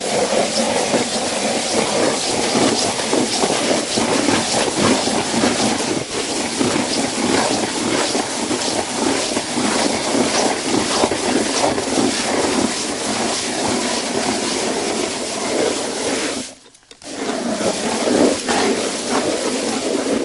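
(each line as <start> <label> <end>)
0.0 A drill is mixing concrete in a plastic bucket. 20.2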